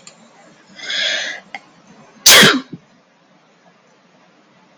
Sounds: Sneeze